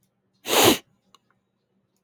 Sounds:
Sniff